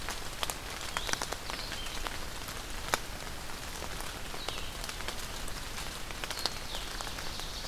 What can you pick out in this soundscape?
Blue-headed Vireo, Ovenbird